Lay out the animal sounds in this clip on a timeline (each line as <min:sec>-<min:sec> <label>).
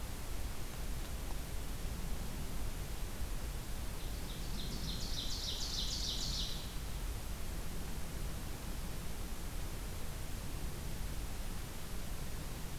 0:04.0-0:06.8 Ovenbird (Seiurus aurocapilla)